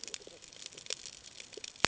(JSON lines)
{"label": "ambient", "recorder": "HydroMoth"}